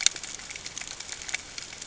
{"label": "ambient", "recorder": "HydroMoth"}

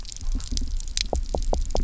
{"label": "biophony, knock", "recorder": "SoundTrap 300"}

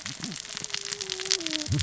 {"label": "biophony, cascading saw", "recorder": "SoundTrap 600 or HydroMoth"}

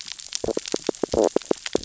{"label": "biophony, stridulation", "recorder": "SoundTrap 600 or HydroMoth"}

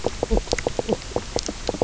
{"label": "biophony, knock croak", "recorder": "SoundTrap 300"}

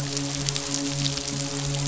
{"label": "biophony, midshipman", "recorder": "SoundTrap 500"}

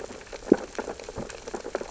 {"label": "biophony, sea urchins (Echinidae)", "recorder": "SoundTrap 600 or HydroMoth"}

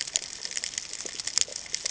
{"label": "ambient", "recorder": "HydroMoth"}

